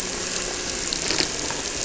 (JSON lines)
{"label": "anthrophony, boat engine", "recorder": "SoundTrap 300"}